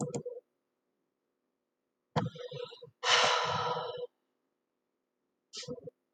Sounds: Sigh